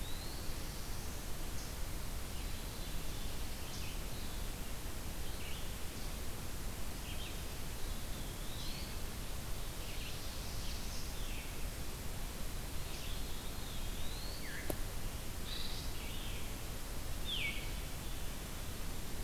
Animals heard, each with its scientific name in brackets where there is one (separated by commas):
Eastern Wood-Pewee (Contopus virens), Black-throated Blue Warbler (Setophaga caerulescens), Veery (Catharus fuscescens), Red-eyed Vireo (Vireo olivaceus)